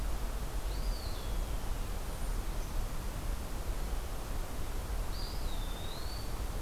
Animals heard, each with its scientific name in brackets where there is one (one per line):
Eastern Wood-Pewee (Contopus virens)